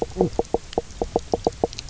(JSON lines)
{"label": "biophony, knock croak", "recorder": "SoundTrap 300"}